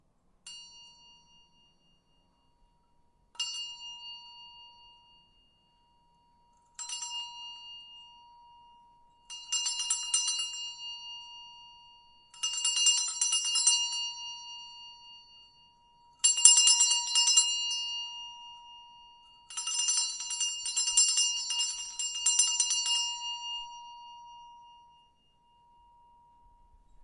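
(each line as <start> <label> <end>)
0.7 A metallic bell is ringing. 2.7
3.0 A metallic bell is fading. 5.8
6.2 A metallic bell rings repeatedly. 27.0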